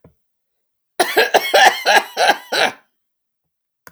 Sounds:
Cough